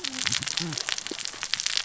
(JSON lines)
{"label": "biophony, cascading saw", "recorder": "SoundTrap 600 or HydroMoth"}